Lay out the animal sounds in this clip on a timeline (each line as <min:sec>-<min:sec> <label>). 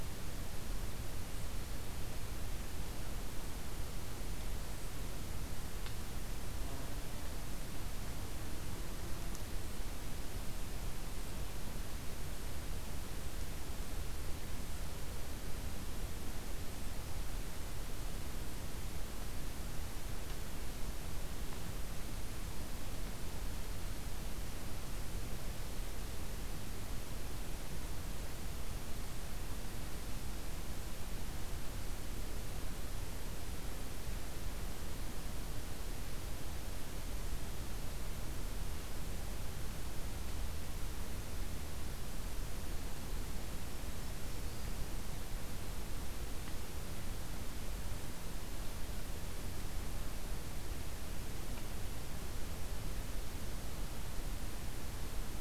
0:43.8-0:44.9 Black-throated Green Warbler (Setophaga virens)